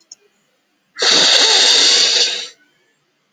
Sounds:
Sigh